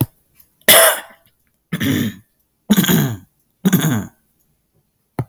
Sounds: Throat clearing